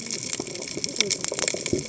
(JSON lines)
{"label": "biophony, cascading saw", "recorder": "HydroMoth"}